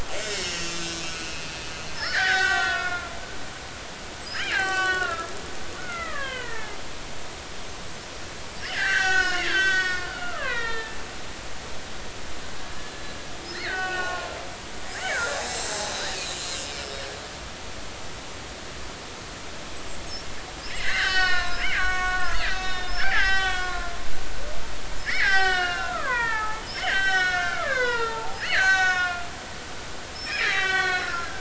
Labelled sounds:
0.2	3.1	killer whale, Bigg's (transient), 0.80 to 7.0 kHz
4.5	5.3	killer whale, Bigg's (transient), 0.99 to 7.7 kHz
5.8	6.8	killer whale, Bigg's (transient), 0.83 to 3.3 kHz
8.6	11.0	killer whale, Bigg's (transient), 0.83 to 7.7 kHz
12.9	14.3	killer whale, Bigg's (transient), 0.99 to 4.4 kHz
15.1	16.2	killer whale, Bigg's (transient), 1.3 to 4.0 kHz
16.8	17.2	killer whale, Bigg's (transient), 5.3 to 5.8 kHz
20.7	23.9	killer whale, Bigg's (transient), 0.80 to 6.8 kHz
25.0	31.3	killer whale, Bigg's (transient), 0.80 to 7.8 kHz

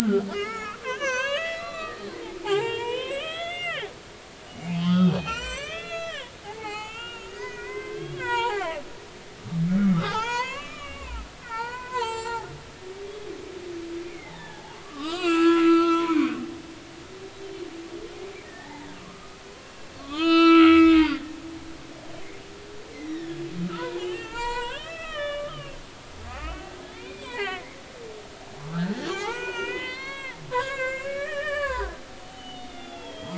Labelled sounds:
0.3	2.1	humpback whale, 0.80 to 6.8 kHz
2.4	3.9	humpback whale, 0.80 to 7.8 kHz
4.5	8.8	humpback whale, 0.80 to 8.0 kHz
9.9	12.5	humpback whale, 0.80 to 7.7 kHz
14.0	16.4	humpback whale, 0.80 to 5.1 kHz
18.4	21.4	humpback whale, 0.80 to 7.7 kHz
23.1	25.8	humpback whale, 0.80 to 5.4 kHz
26.3	27.8	humpback whale, 0.80 to 3.1 kHz
28.7	33.3	humpback whale, 0.80 to 7.6 kHz

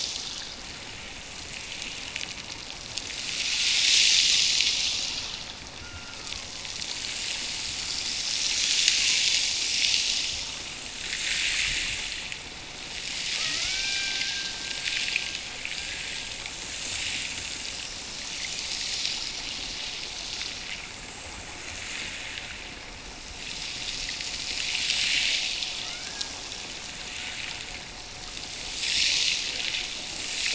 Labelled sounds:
13.3	15.5	killer whale, Bigg's (transient), Gulf of Alaska transient, 1.1 to 2.5 kHz
25.8	26.5	killer whale, Bigg's (transient), Gulf of Alaska transient, 1.0 to 2.4 kHz

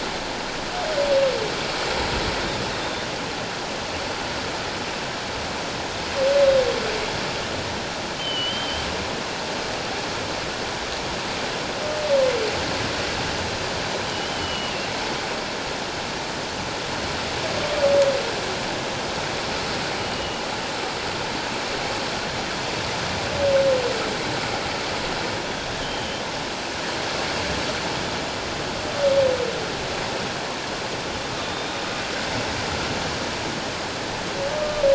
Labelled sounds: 8.2	8.8	humpback whale, 2.9 to 3.2 kHz
14.1	14.9	humpback whale, 2.6 to 3.2 kHz
20.0	20.4	humpback whale, 2.8 to 3.0 kHz
25.8	26.2	humpback whale, 2.9 to 3.3 kHz
31.5	31.8	humpback whale, 3.5 to 3.8 kHz
34.6	34.8	humpback whale, 1.16 to 1.25 kHz

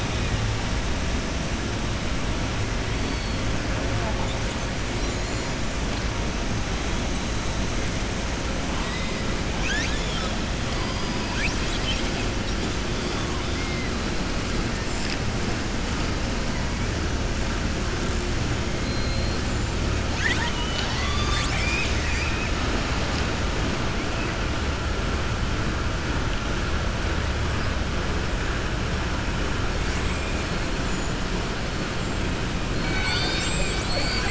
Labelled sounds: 9.5	10.3	killer whale, southern resident, 1.3 to 7.1 kHz
11.2	12.2	killer whale, southern resident, 1.0 to 7.7 kHz
18.8	19.4	killer whale, southern resident, 3.3 to 5.0 kHz
20.1	22.5	killer whale, southern resident, 0.93 to 7.9 kHz

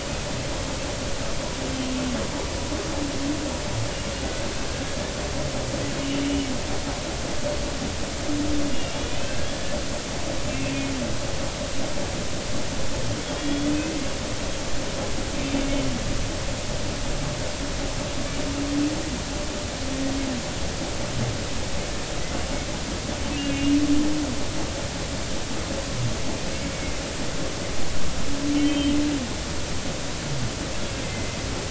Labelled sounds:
8.7	9.8	humpback whale, 1.5 to 3.5 kHz
10.5	10.8	humpback whale, 2.3 to 2.8 kHz
13.4	14.0	humpback whale, 2.4 to 3.6 kHz
23.4	23.8	humpback whale, 2.7 to 2.9 kHz
26.7	27.0	humpback whale, 2.0 to 2.3 kHz
28.5	28.9	humpback whale, 2.9 to 3.2 kHz
31.0	31.4	humpback whale, 2.0 to 2.1 kHz

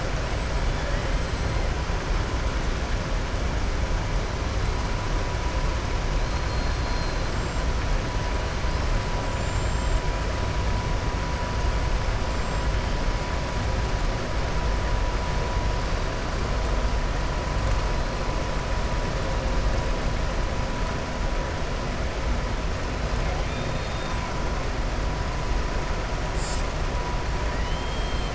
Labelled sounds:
6.4	7.3	killer whale, southern resident, 3.6 to 4.3 kHz
9.2	10.0	killer whale, southern resident, 7.0 to 7.9 kHz
23.4	24.2	killer whale, southern resident, 2.4 to 4.7 kHz
27.5	28.3	killer whale, southern resident, 1.8 to 4.3 kHz

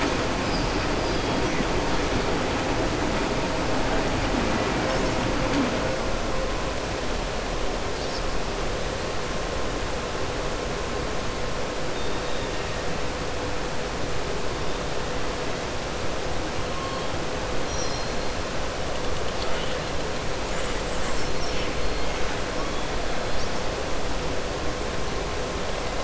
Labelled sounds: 11.9	12.7	killer whale, southern resident, 1.9 to 4.6 kHz

